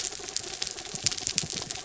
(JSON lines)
{"label": "anthrophony, mechanical", "recorder": "SoundTrap 300"}